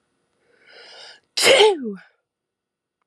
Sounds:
Sneeze